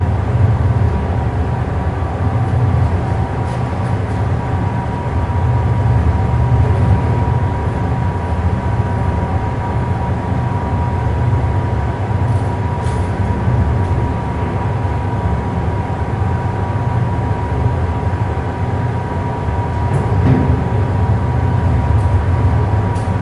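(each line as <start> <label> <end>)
0.0 Deep engine drone with mechanical and structural noises inside a ferry. 23.2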